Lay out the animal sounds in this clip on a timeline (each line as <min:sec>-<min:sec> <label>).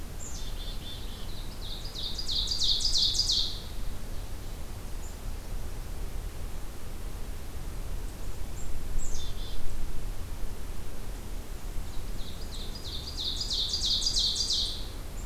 0:00.0-0:01.4 Black-capped Chickadee (Poecile atricapillus)
0:01.3-0:03.7 Ovenbird (Seiurus aurocapilla)
0:05.0-0:05.2 Black-capped Chickadee (Poecile atricapillus)
0:08.8-0:09.6 Black-capped Chickadee (Poecile atricapillus)
0:11.9-0:14.9 Ovenbird (Seiurus aurocapilla)